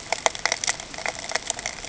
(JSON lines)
{"label": "ambient", "recorder": "HydroMoth"}